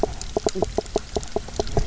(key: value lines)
label: biophony, knock croak
recorder: SoundTrap 300